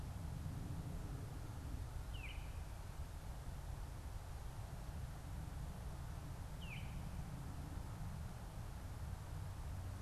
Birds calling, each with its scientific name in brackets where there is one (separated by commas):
Baltimore Oriole (Icterus galbula)